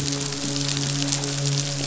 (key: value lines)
label: biophony, midshipman
recorder: SoundTrap 500